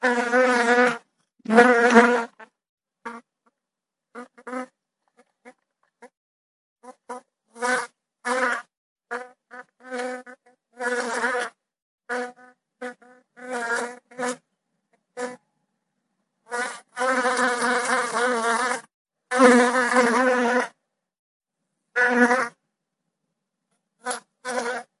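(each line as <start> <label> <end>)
0.0 A fly buzzes as it moves through the air, occasionally stopping and hovering. 25.0
0.0 A high-pitched, whizzing sound with a faint vibrating quality and slight irregularity. 25.0
0.0 Buzzing fluctuates in intensity, becoming louder when in motion and softer when pausing. 25.0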